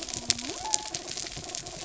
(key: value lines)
label: biophony
recorder: SoundTrap 300

label: anthrophony, mechanical
recorder: SoundTrap 300